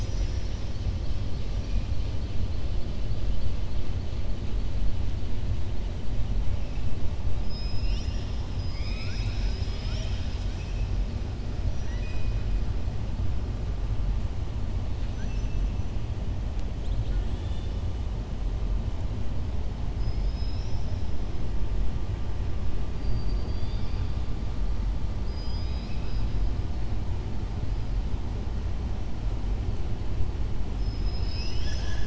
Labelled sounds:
7.4	8.3	killer whale, southern resident, 2.0 to 7.3 kHz
11.8	12.3	killer whale, southern resident, 0.99 to 3.5 kHz
15.0	15.6	killer whale, southern resident, 1.5 to 3.4 kHz
16.7	17.8	killer whale, southern resident, 1.4 to 4.8 kHz
19.9	21.1	killer whale, southern resident, 3.8 to 5.9 kHz
23.0	24.1	killer whale, southern resident, 2.3 to 5.2 kHz
25.2	26.3	killer whale, southern resident, 2.4 to 5.5 kHz

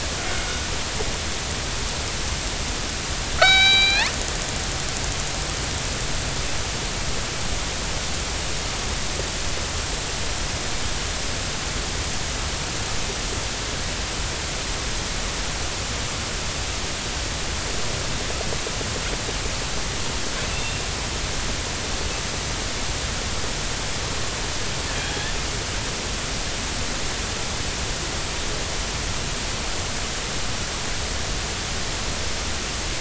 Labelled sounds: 3.4	4.1	killer whale, northern resident, G clan, 0.80 to 7.1 kHz
24.9	25.3	killer whale, northern resident, G clan, 3.2 to 3.4 kHz

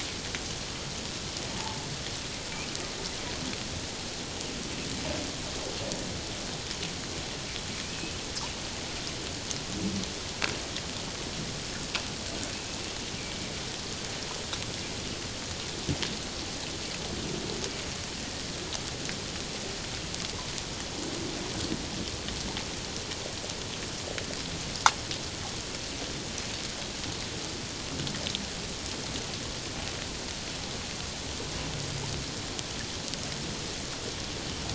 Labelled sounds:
1.5	1.9	humpback whale, 0.81 to 0.97 kHz
7.9	8.1	humpback whale, 2.5 to 2.7 kHz

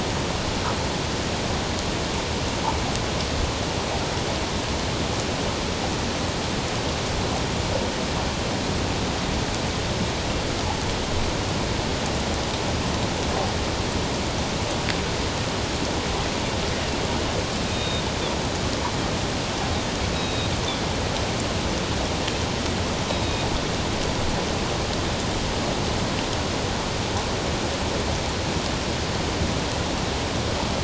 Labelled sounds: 17.7	18.0	Pacific white-sided dolphin, 3.6 to 3.8 kHz
20.1	20.5	Pacific white-sided dolphin, 2.5 to 3.9 kHz
23.1	23.4	Pacific white-sided dolphin, 3.7 to 3.9 kHz

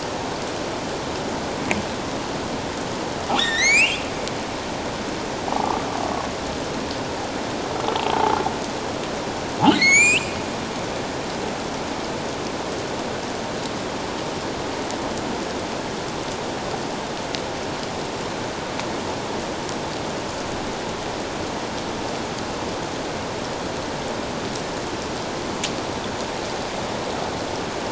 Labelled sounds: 3.4	4.0	humpback whale, 1.7 to 8.0 kHz
5.5	5.8	humpback whale, 1.1 to 1.2 kHz
8.1	8.4	humpback whale, 0.78 to 1.1 kHz
9.7	10.4	humpback whale, 1.8 to 7.8 kHz

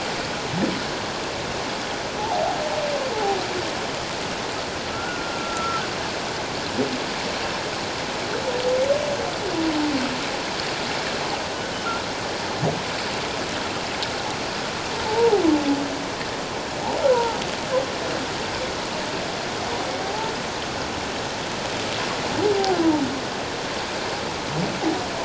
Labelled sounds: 2.2	2.6	humpback whale, 0.78 to 0.97 kHz
4.9	5.8	humpback whale, 1.2 to 1.5 kHz
15.1	15.4	humpback whale, 0.78 to 1.0 kHz
17.1	17.4	humpback whale, 0.84 to 1.0 kHz
20.0	20.3	humpback whale, 0.78 to 0.94 kHz

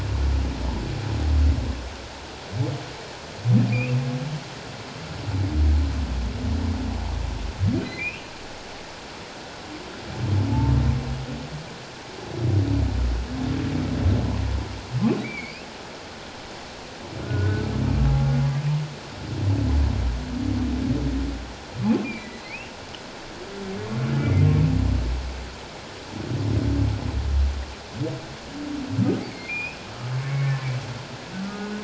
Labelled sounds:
3.7	4.0	humpback whale, 2.2 to 2.8 kHz
7.8	8.3	humpback whale, 1.9 to 3.0 kHz
15.2	15.7	humpback whale, 1.9 to 2.8 kHz
17.2	17.7	humpback whale, 1.3 to 1.6 kHz
22.1	22.7	humpback whale, 1.9 to 2.8 kHz
24.2	24.5	humpback whale, 2.0 to 2.2 kHz
29.5	30.5	humpback whale, 1.0 to 2.6 kHz
31.4	31.7	humpback whale, 1.1 to 1.5 kHz

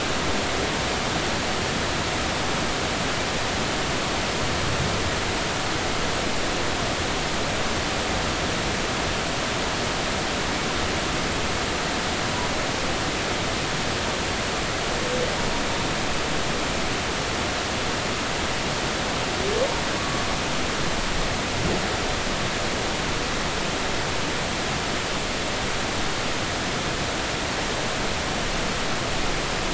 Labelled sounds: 20.0	20.2	humpback whale, 1.1 to 1.2 kHz

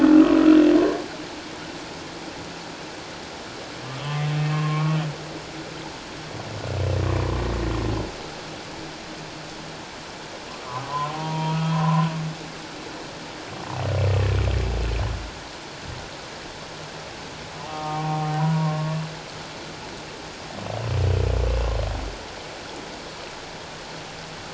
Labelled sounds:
3.8	5.0	humpback whale, 1.0 to 2.7 kHz
10.6	12.1	humpback whale, 0.84 to 1.3 kHz
17.7	18.8	humpback whale, 0.78 to 1.3 kHz

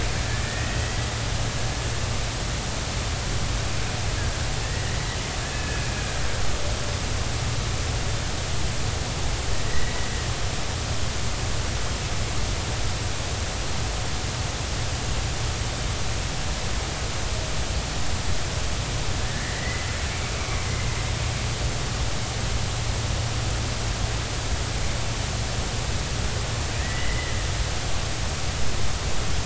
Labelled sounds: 0.5	1.1	killer whale, Bigg's (transient), 1.7 to 2.0 kHz
4.6	5.0	killer whale, Bigg's (transient), 1.7 to 2.0 kHz
5.5	5.9	killer whale, Bigg's (transient), 1.7 to 2.6 kHz
9.7	10.1	killer whale, Bigg's (transient), 1.8 to 2.0 kHz
19.3	20.6	killer whale, Bigg's (transient), 1.7 to 2.4 kHz
26.8	27.4	killer whale, Bigg's (transient), 1.8 to 2.1 kHz

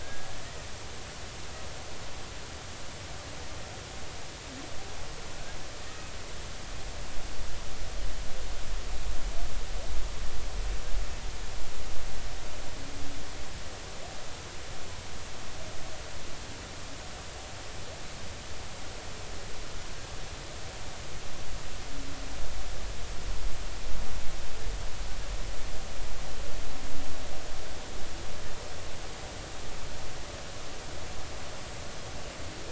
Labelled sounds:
0.0	0.3	humpback whale, 1.6 to 1.7 kHz

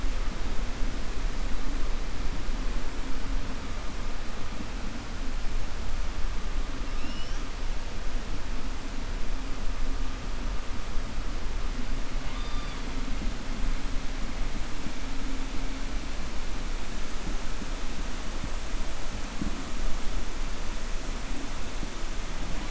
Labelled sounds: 6.9	7.4	killer whale, 2.6 to 6.4 kHz
12.2	12.8	killer whale, 1.1 to 4.9 kHz

